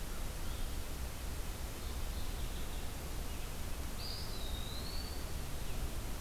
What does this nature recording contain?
Mourning Warbler, Eastern Wood-Pewee